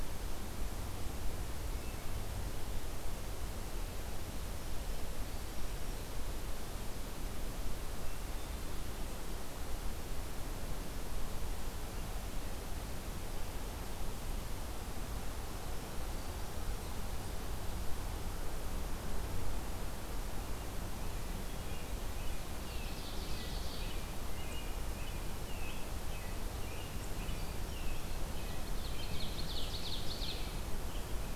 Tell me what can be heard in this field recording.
Wood Thrush, American Robin, Ovenbird